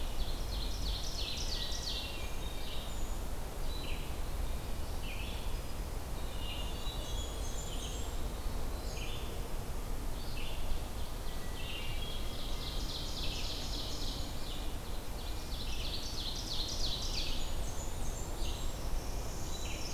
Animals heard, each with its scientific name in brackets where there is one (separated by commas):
Hermit Thrush (Catharus guttatus), Blackburnian Warbler (Setophaga fusca), Ovenbird (Seiurus aurocapilla), Red-eyed Vireo (Vireo olivaceus), Winter Wren (Troglodytes hiemalis), Black-capped Chickadee (Poecile atricapillus), Northern Parula (Setophaga americana)